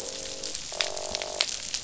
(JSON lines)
{"label": "biophony, croak", "recorder": "SoundTrap 500"}